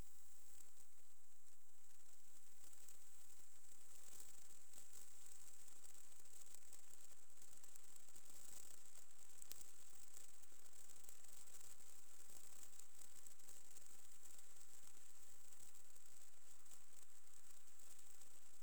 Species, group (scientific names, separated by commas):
Platycleis albopunctata, Orthoptera